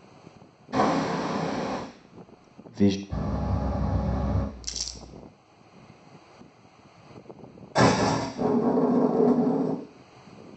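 First, you can hear waves. After that, a voice says "visual." Afterwards, there is the sound of a train. Later, crumpling is audible. Next, a wooden cupboard closes. Finally, wooden furniture moves.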